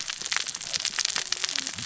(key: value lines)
label: biophony, cascading saw
recorder: SoundTrap 600 or HydroMoth